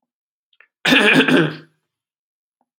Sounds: Throat clearing